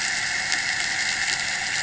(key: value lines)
label: anthrophony, boat engine
recorder: HydroMoth